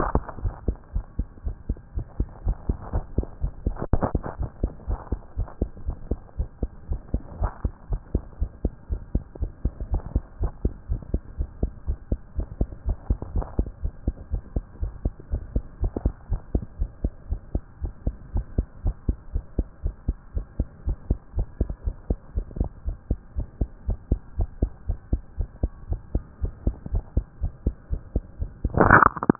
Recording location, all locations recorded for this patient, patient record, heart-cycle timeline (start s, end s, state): tricuspid valve (TV)
aortic valve (AV)+pulmonary valve (PV)+tricuspid valve (TV)+mitral valve (MV)
#Age: Child
#Sex: Male
#Height: 123.0 cm
#Weight: 22.4 kg
#Pregnancy status: False
#Murmur: Absent
#Murmur locations: nan
#Most audible location: nan
#Systolic murmur timing: nan
#Systolic murmur shape: nan
#Systolic murmur grading: nan
#Systolic murmur pitch: nan
#Systolic murmur quality: nan
#Diastolic murmur timing: nan
#Diastolic murmur shape: nan
#Diastolic murmur grading: nan
#Diastolic murmur pitch: nan
#Diastolic murmur quality: nan
#Outcome: Normal
#Campaign: 2014 screening campaign
0.00	0.35	unannotated
0.35	0.42	diastole
0.42	0.54	S1
0.54	0.66	systole
0.66	0.76	S2
0.76	0.94	diastole
0.94	1.04	S1
1.04	1.18	systole
1.18	1.26	S2
1.26	1.44	diastole
1.44	1.56	S1
1.56	1.68	systole
1.68	1.78	S2
1.78	1.96	diastole
1.96	2.06	S1
2.06	2.18	systole
2.18	2.28	S2
2.28	2.46	diastole
2.46	2.56	S1
2.56	2.68	systole
2.68	2.76	S2
2.76	2.94	diastole
2.94	3.04	S1
3.04	3.16	systole
3.16	3.26	S2
3.26	3.46	diastole
3.46	3.52	S1
3.52	3.64	systole
3.64	3.76	S2
3.76	3.92	diastole
3.92	4.02	S1
4.02	4.14	systole
4.14	4.22	S2
4.22	4.38	diastole
4.38	4.50	S1
4.50	4.62	systole
4.62	4.72	S2
4.72	4.88	diastole
4.88	4.98	S1
4.98	5.10	systole
5.10	5.20	S2
5.20	5.38	diastole
5.38	5.48	S1
5.48	5.60	systole
5.60	5.70	S2
5.70	5.86	diastole
5.86	5.96	S1
5.96	6.10	systole
6.10	6.18	S2
6.18	6.38	diastole
6.38	6.48	S1
6.48	6.62	systole
6.62	6.70	S2
6.70	6.90	diastole
6.90	7.00	S1
7.00	7.12	systole
7.12	7.22	S2
7.22	7.40	diastole
7.40	7.52	S1
7.52	7.64	systole
7.64	7.72	S2
7.72	7.90	diastole
7.90	8.00	S1
8.00	8.14	systole
8.14	8.22	S2
8.22	8.40	diastole
8.40	8.50	S1
8.50	8.64	systole
8.64	8.72	S2
8.72	8.90	diastole
8.90	9.00	S1
9.00	9.14	systole
9.14	9.24	S2
9.24	9.40	diastole
9.40	9.52	S1
9.52	9.64	systole
9.64	9.72	S2
9.72	9.90	diastole
9.90	10.02	S1
10.02	10.14	systole
10.14	10.22	S2
10.22	10.40	diastole
10.40	10.52	S1
10.52	10.64	systole
10.64	10.72	S2
10.72	10.90	diastole
10.90	11.00	S1
11.00	11.12	systole
11.12	11.22	S2
11.22	11.38	diastole
11.38	11.48	S1
11.48	11.62	systole
11.62	11.72	S2
11.72	11.88	diastole
11.88	11.98	S1
11.98	12.10	systole
12.10	12.20	S2
12.20	12.36	diastole
12.36	12.48	S1
12.48	12.60	systole
12.60	12.68	S2
12.68	12.86	diastole
12.86	12.96	S1
12.96	13.08	systole
13.08	13.18	S2
13.18	13.34	diastole
13.34	13.46	S1
13.46	13.58	systole
13.58	13.68	S2
13.68	13.82	diastole
13.82	13.92	S1
13.92	14.06	systole
14.06	14.16	S2
14.16	14.32	diastole
14.32	14.42	S1
14.42	14.54	systole
14.54	14.64	S2
14.64	14.82	diastole
14.82	14.92	S1
14.92	15.04	systole
15.04	15.12	S2
15.12	15.32	diastole
15.32	15.42	S1
15.42	15.54	systole
15.54	15.64	S2
15.64	15.82	diastole
15.82	15.92	S1
15.92	16.04	systole
16.04	16.14	S2
16.14	16.30	diastole
16.30	16.40	S1
16.40	16.54	systole
16.54	16.64	S2
16.64	16.80	diastole
16.80	16.90	S1
16.90	17.02	systole
17.02	17.12	S2
17.12	17.30	diastole
17.30	17.40	S1
17.40	17.54	systole
17.54	17.62	S2
17.62	17.82	diastole
17.82	17.92	S1
17.92	18.06	systole
18.06	18.14	S2
18.14	18.34	diastole
18.34	18.46	S1
18.46	18.56	systole
18.56	18.66	S2
18.66	18.84	diastole
18.84	18.96	S1
18.96	19.08	systole
19.08	19.16	S2
19.16	19.34	diastole
19.34	19.44	S1
19.44	19.58	systole
19.58	19.66	S2
19.66	19.84	diastole
19.84	19.94	S1
19.94	20.06	systole
20.06	20.16	S2
20.16	20.34	diastole
20.34	20.46	S1
20.46	20.58	systole
20.58	20.68	S2
20.68	20.86	diastole
20.86	20.96	S1
20.96	21.08	systole
21.08	21.18	S2
21.18	21.36	diastole
21.36	21.46	S1
21.46	21.60	systole
21.60	21.70	S2
21.70	21.86	diastole
21.86	21.96	S1
21.96	22.08	systole
22.08	22.18	S2
22.18	22.36	diastole
22.36	22.46	S1
22.46	22.58	systole
22.58	22.70	S2
22.70	22.86	diastole
22.86	22.96	S1
22.96	23.10	systole
23.10	23.18	S2
23.18	23.36	diastole
23.36	23.48	S1
23.48	23.60	systole
23.60	23.68	S2
23.68	23.88	diastole
23.88	23.98	S1
23.98	24.10	systole
24.10	24.20	S2
24.20	24.38	diastole
24.38	24.48	S1
24.48	24.60	systole
24.60	24.70	S2
24.70	24.88	diastole
24.88	24.98	S1
24.98	25.12	systole
25.12	25.22	S2
25.22	25.38	diastole
25.38	25.48	S1
25.48	25.62	systole
25.62	25.72	S2
25.72	25.90	diastole
25.90	26.00	S1
26.00	26.14	systole
26.14	26.24	S2
26.24	26.42	diastole
26.42	26.52	S1
26.52	26.66	systole
26.66	26.76	S2
26.76	26.92	diastole
26.92	27.04	S1
27.04	27.16	systole
27.16	27.26	S2
27.26	27.42	diastole
27.42	27.52	S1
27.52	27.64	systole
27.64	27.74	S2
27.74	27.92	diastole
27.92	28.02	S1
28.02	28.14	systole
28.14	28.24	S2
28.24	28.42	diastole
28.42	29.39	unannotated